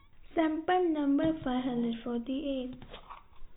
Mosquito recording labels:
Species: no mosquito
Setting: cup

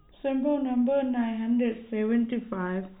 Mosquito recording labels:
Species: no mosquito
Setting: cup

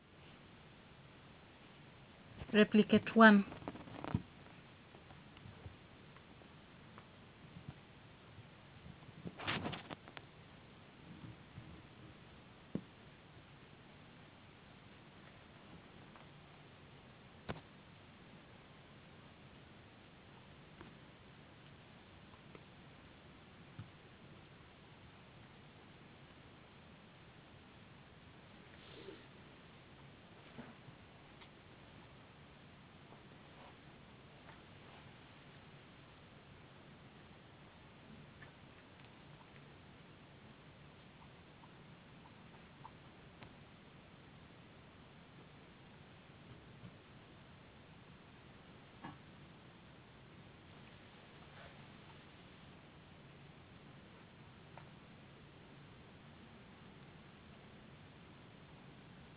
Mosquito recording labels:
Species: no mosquito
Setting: insect culture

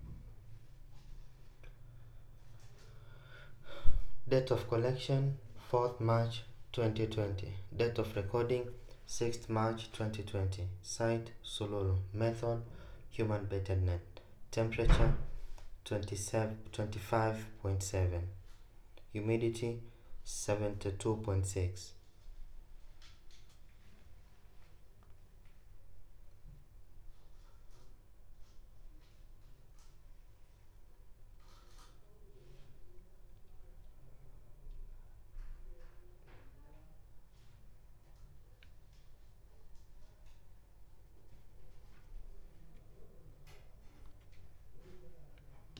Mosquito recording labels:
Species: no mosquito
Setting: cup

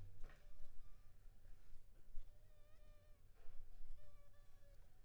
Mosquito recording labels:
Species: Anopheles funestus s.s.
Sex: female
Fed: unfed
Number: one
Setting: cup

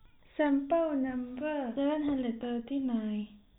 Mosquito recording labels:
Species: no mosquito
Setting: cup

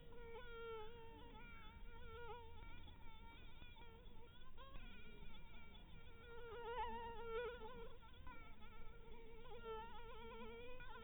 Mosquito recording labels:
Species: Anopheles dirus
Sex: female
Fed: blood-fed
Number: one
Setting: cup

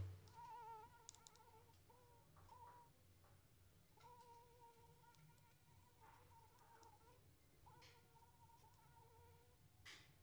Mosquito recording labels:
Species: Anopheles arabiensis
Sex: female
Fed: unfed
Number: one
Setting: cup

